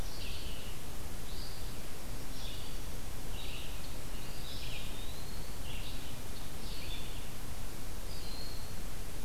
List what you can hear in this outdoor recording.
Red-eyed Vireo, Eastern Wood-Pewee